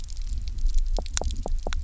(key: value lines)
label: biophony, knock
recorder: SoundTrap 300